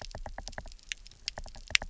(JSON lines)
{"label": "biophony, knock", "recorder": "SoundTrap 300"}